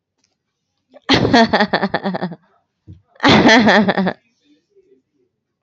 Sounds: Laughter